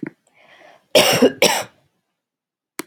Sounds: Cough